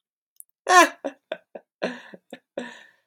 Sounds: Laughter